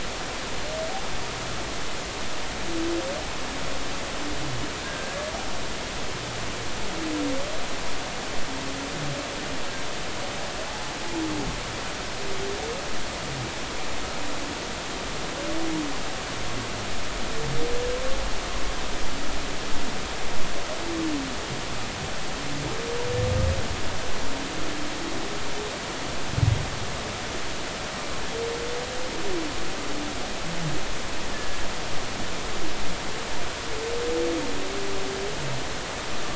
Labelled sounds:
4.8	5.3	humpback whale, 1.5 to 1.7 kHz
31.3	31.6	humpback whale, 1.6 to 1.8 kHz

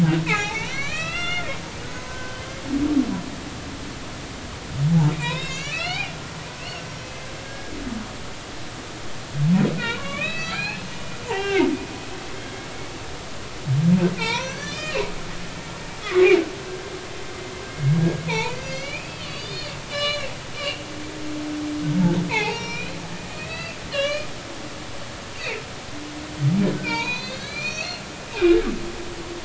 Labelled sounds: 0.3	1.5	humpback whale, 0.80 to 6.4 kHz
1.9	2.6	humpback whale, 0.96 to 3.2 kHz
5.1	6.1	humpback whale, 1.2 to 4.7 kHz
6.6	7.7	humpback whale, 1.6 to 5.7 kHz
9.8	11.7	humpback whale, 0.80 to 5.3 kHz
14.2	15.1	humpback whale, 0.83 to 6.2 kHz
16.0	16.4	humpback whale, 1.1 to 2.5 kHz
17.7	20.8	humpback whale, 0.83 to 6.5 kHz
22.3	24.3	humpback whale, 0.80 to 5.9 kHz
25.3	25.6	humpback whale, 1.9 to 2.8 kHz
26.7	28.0	humpback whale, 0.86 to 6.6 kHz

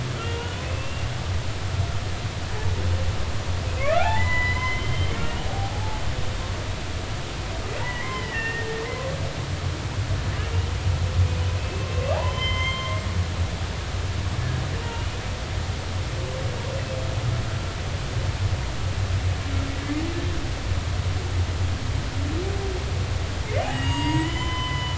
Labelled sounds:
0.1	1.1	humpback whale, 1.3 to 3.0 kHz
3.8	6.0	humpback whale, 0.80 to 7.1 kHz
7.8	8.8	humpback whale, 0.83 to 3.2 kHz
11.6	13.0	humpback whale, 0.99 to 5.3 kHz
23.6	24.9	humpback whale, 0.90 to 7.7 kHz

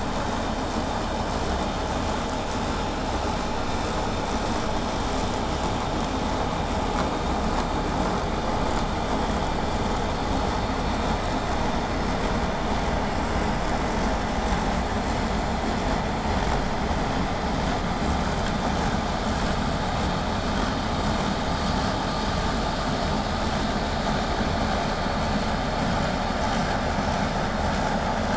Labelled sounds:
23.4	28.3	vessel noise, 0 to 8.0 kHz

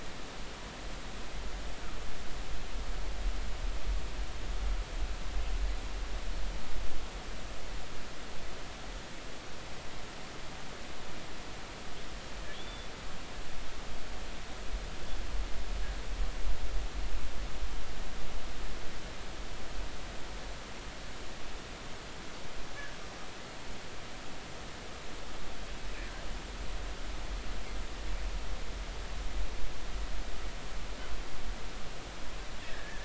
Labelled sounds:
12.5	12.9	killer whale, northern resident, 3.2 to 3.6 kHz
23.0	23.3	killer whale, northern resident, 5.6 to 5.8 kHz
32.6	33.0	killer whale, northern resident, 1.6 to 2.0 kHz

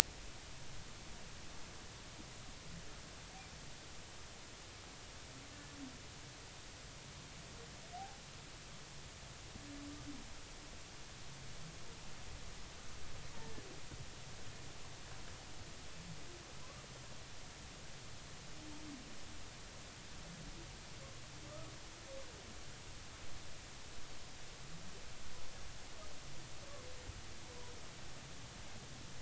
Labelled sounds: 8.0	8.2	humpback whale, 0.80 to 0.90 kHz
13.4	13.6	humpback whale, 1.7 to 1.8 kHz

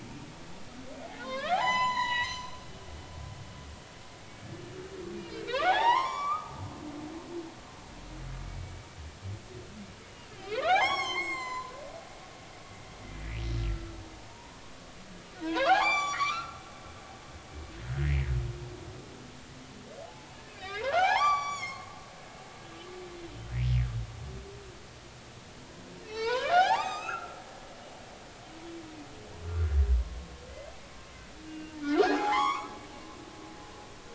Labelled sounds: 1.2	2.6	humpback whale, 0.80 to 8.0 kHz
4.2	4.6	humpback whale, 1.7 to 2.3 kHz
5.1	6.5	humpback whale, 0.80 to 8.0 kHz
8.4	8.7	humpback whale, 2.2 to 2.3 kHz
10.3	11.7	humpback whale, 0.80 to 7.8 kHz
13.1	14.6	humpback whale, 0.90 to 2.7 kHz
15.4	16.6	humpback whale, 0.80 to 8.0 kHz
18.0	18.3	humpback whale, 1.8 to 2.2 kHz
20.0	21.9	humpback whale, 0.80 to 8.0 kHz
22.1	22.9	humpback whale, 2.0 to 3.6 kHz
26.0	27.4	humpback whale, 0.80 to 7.6 kHz
29.4	30.3	humpback whale, 1.0 to 1.6 kHz
31.5	32.7	humpback whale, 0.80 to 7.0 kHz

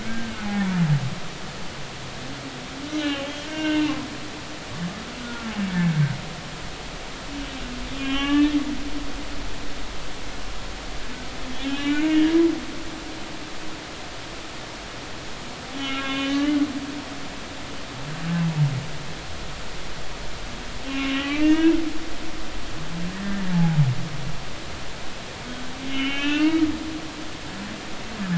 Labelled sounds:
0.0	0.7	humpback whale, 0.80 to 1.7 kHz
2.9	4.0	humpback whale, 1.5 to 3.3 kHz
5.2	5.5	humpback whale, 1.3 to 1.5 kHz
5.8	6.1	humpback whale, 2.2 to 2.3 kHz
7.9	8.6	humpback whale, 0.80 to 3.6 kHz
11.6	12.3	humpback whale, 1.4 to 3.9 kHz
15.8	16.7	humpback whale, 1.0 to 3.6 kHz
20.9	21.8	humpback whale, 1.1 to 3.6 kHz
23.1	23.8	humpback whale, 0.80 to 1.9 kHz
25.5	26.7	humpback whale, 1.2 to 3.2 kHz

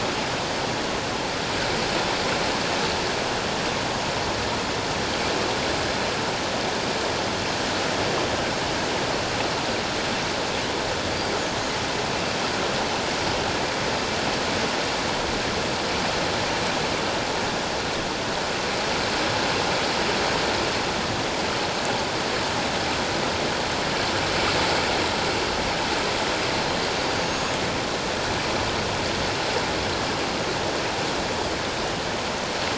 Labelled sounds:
11.1	11.3	killer whale, offshore, 4.4 to 4.8 kHz
27.2	27.6	killer whale, offshore, 6.4 to 6.7 kHz

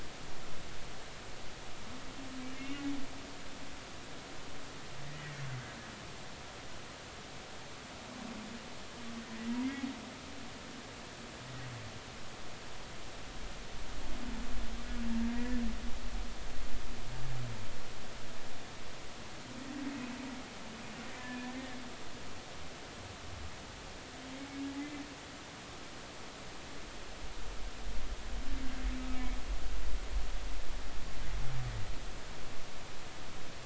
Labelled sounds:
2.6	2.8	humpback whale, 2.6 to 2.9 kHz
15.3	15.6	humpback whale, 1.9 to 2.0 kHz
21.2	21.8	humpback whale, 1.7 to 1.9 kHz
29.1	29.4	humpback whale, 2.1 to 2.4 kHz

